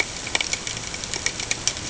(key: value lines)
label: ambient
recorder: HydroMoth